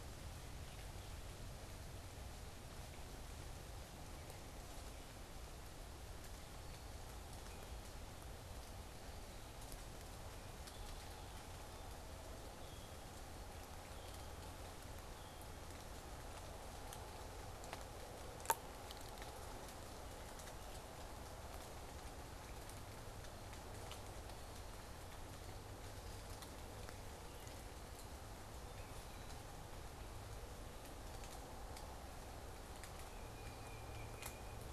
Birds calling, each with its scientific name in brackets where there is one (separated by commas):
unidentified bird, Tufted Titmouse (Baeolophus bicolor)